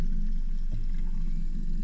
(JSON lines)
{"label": "anthrophony, boat engine", "recorder": "SoundTrap 300"}